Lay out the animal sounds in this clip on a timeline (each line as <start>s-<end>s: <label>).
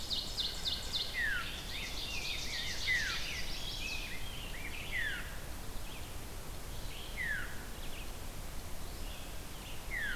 0.0s-3.4s: Ovenbird (Seiurus aurocapilla)
0.0s-10.2s: Veery (Catharus fuscescens)
1.6s-5.4s: Rose-breasted Grosbeak (Pheucticus ludovicianus)
3.2s-4.1s: Chestnut-sided Warbler (Setophaga pensylvanica)
4.0s-10.2s: Red-eyed Vireo (Vireo olivaceus)